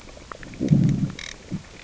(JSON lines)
{"label": "biophony, growl", "recorder": "SoundTrap 600 or HydroMoth"}